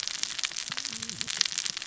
{"label": "biophony, cascading saw", "recorder": "SoundTrap 600 or HydroMoth"}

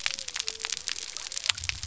{"label": "biophony", "recorder": "SoundTrap 300"}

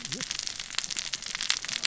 {"label": "biophony, cascading saw", "recorder": "SoundTrap 600 or HydroMoth"}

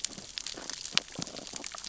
{"label": "biophony, sea urchins (Echinidae)", "recorder": "SoundTrap 600 or HydroMoth"}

